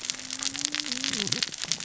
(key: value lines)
label: biophony, cascading saw
recorder: SoundTrap 600 or HydroMoth